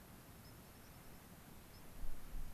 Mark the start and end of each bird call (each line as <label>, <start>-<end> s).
White-crowned Sparrow (Zonotrichia leucophrys), 0.4-0.5 s
Dark-eyed Junco (Junco hyemalis), 0.5-1.2 s
White-crowned Sparrow (Zonotrichia leucophrys), 1.7-1.8 s